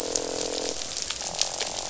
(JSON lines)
{"label": "biophony, croak", "recorder": "SoundTrap 500"}